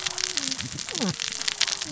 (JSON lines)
{"label": "biophony, cascading saw", "recorder": "SoundTrap 600 or HydroMoth"}